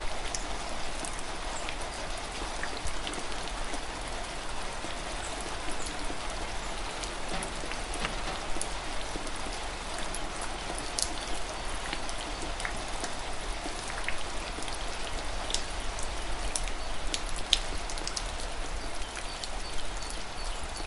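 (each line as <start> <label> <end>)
0.0 Heavy rain falls steadily. 16.5
16.5 Rain falls with birds chirping in the background outdoors. 20.9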